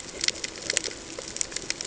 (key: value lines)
label: ambient
recorder: HydroMoth